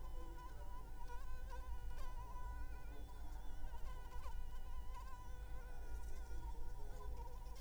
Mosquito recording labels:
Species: Anopheles arabiensis; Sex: female; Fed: unfed; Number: one; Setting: cup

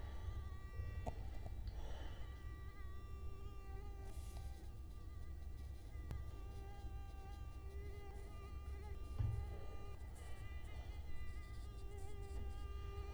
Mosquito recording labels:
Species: Culex quinquefasciatus; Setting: cup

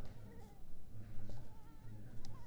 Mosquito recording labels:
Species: Culex pipiens complex; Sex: female; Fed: unfed; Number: one; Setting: cup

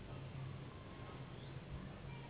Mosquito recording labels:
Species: Anopheles gambiae s.s.; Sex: female; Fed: unfed; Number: one; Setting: insect culture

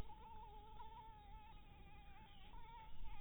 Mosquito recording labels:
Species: Anopheles maculatus; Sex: female; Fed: blood-fed; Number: one; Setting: cup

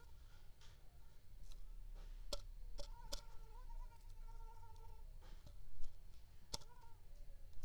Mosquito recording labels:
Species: Anopheles squamosus; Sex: female; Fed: unfed; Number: one; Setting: cup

